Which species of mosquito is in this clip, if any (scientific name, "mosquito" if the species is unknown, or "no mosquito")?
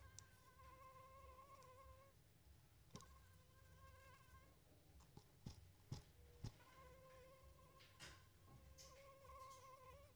Anopheles arabiensis